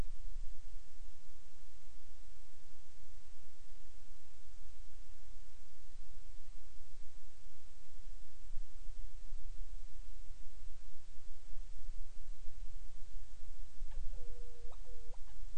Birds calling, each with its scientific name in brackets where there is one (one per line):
Hawaiian Petrel (Pterodroma sandwichensis)